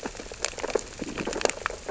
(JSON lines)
{"label": "biophony, sea urchins (Echinidae)", "recorder": "SoundTrap 600 or HydroMoth"}